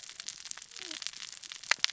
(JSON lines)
{"label": "biophony, cascading saw", "recorder": "SoundTrap 600 or HydroMoth"}